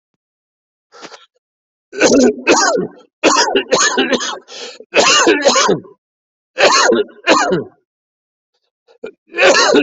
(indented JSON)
{
  "expert_labels": [
    {
      "quality": "good",
      "cough_type": "dry",
      "dyspnea": true,
      "wheezing": false,
      "stridor": false,
      "choking": false,
      "congestion": false,
      "nothing": false,
      "diagnosis": "COVID-19",
      "severity": "severe"
    }
  ],
  "age": 68,
  "gender": "male",
  "respiratory_condition": false,
  "fever_muscle_pain": false,
  "status": "healthy"
}